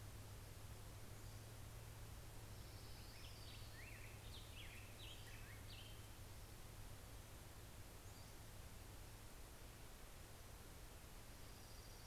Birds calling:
Orange-crowned Warbler (Leiothlypis celata), Pacific-slope Flycatcher (Empidonax difficilis), Black-headed Grosbeak (Pheucticus melanocephalus)

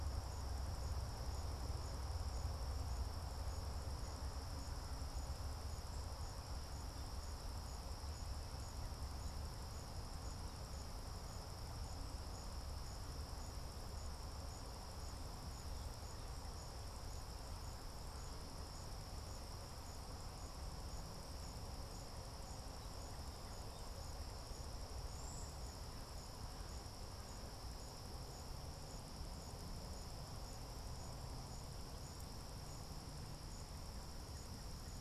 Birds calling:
Cedar Waxwing (Bombycilla cedrorum)

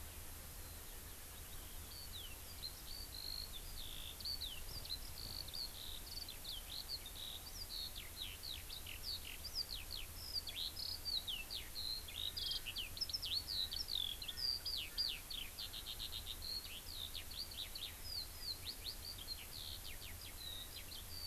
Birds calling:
Eurasian Skylark (Alauda arvensis)

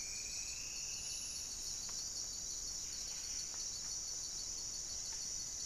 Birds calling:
unidentified bird, Buff-breasted Wren (Cantorchilus leucotis), Striped Woodcreeper (Xiphorhynchus obsoletus)

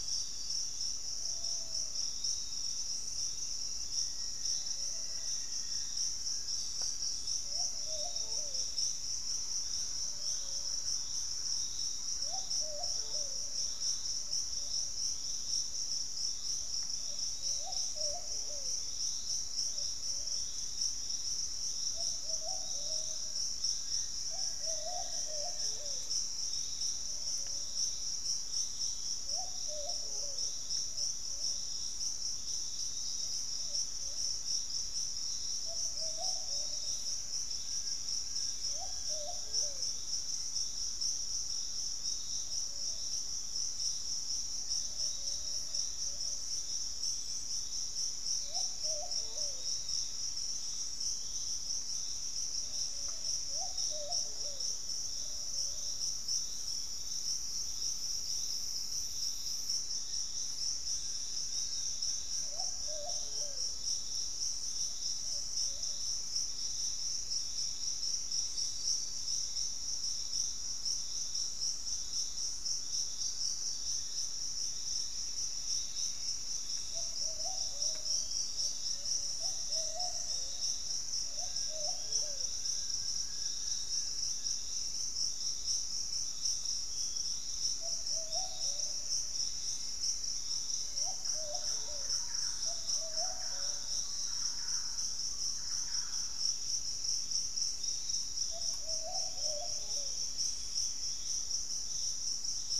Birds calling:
Pygmy Antwren (Myrmotherula brachyura), Thrush-like Wren (Campylorhynchus turdinus), Fasciated Antshrike (Cymbilaimus lineatus), unidentified bird, Black-faced Antthrush (Formicarius analis), Hauxwell's Thrush (Turdus hauxwelli), Piratic Flycatcher (Legatus leucophaius), Grayish Mourner (Rhytipterna simplex)

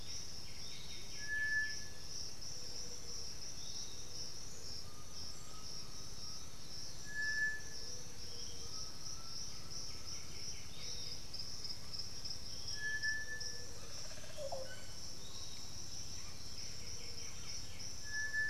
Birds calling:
White-winged Becard (Pachyramphus polychopterus), Piratic Flycatcher (Legatus leucophaius), Olive Oropendola (Psarocolius bifasciatus), Undulated Tinamou (Crypturellus undulatus)

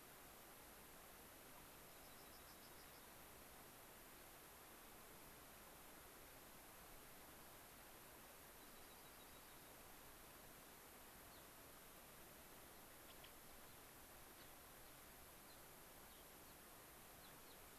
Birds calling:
Gray-crowned Rosy-Finch (Leucosticte tephrocotis), Dark-eyed Junco (Junco hyemalis)

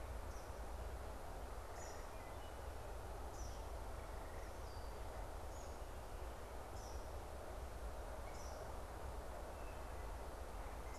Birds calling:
Wood Thrush (Hylocichla mustelina), Eastern Kingbird (Tyrannus tyrannus)

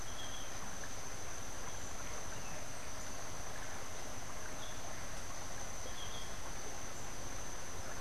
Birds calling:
Yellow-throated Euphonia (Euphonia hirundinacea)

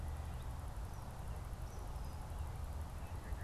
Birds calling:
Eastern Kingbird (Tyrannus tyrannus)

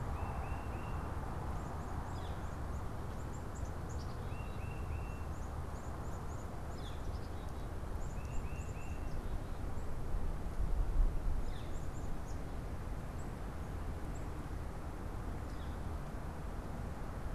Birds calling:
Black-capped Chickadee (Poecile atricapillus), Northern Flicker (Colaptes auratus), Tufted Titmouse (Baeolophus bicolor)

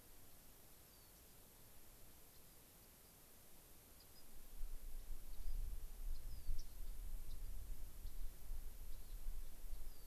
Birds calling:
unidentified bird, Rock Wren (Salpinctes obsoletus)

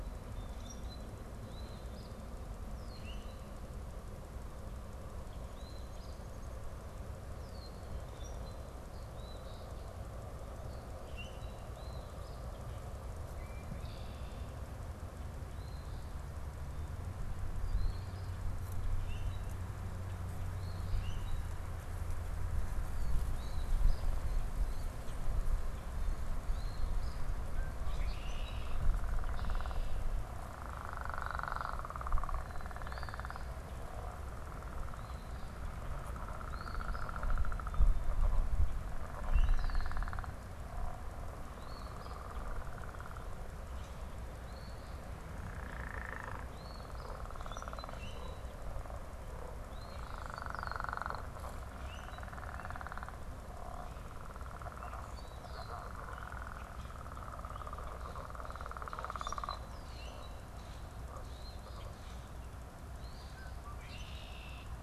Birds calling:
unidentified bird, Eastern Phoebe (Sayornis phoebe), Common Grackle (Quiscalus quiscula), Red-winged Blackbird (Agelaius phoeniceus)

